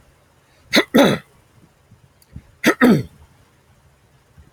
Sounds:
Throat clearing